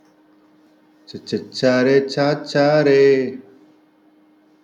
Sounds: Sigh